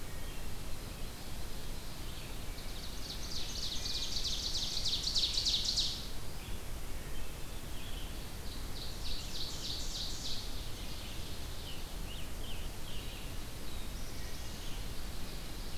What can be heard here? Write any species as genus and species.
Hylocichla mustelina, Vireo olivaceus, Seiurus aurocapilla, Piranga olivacea, Setophaga caerulescens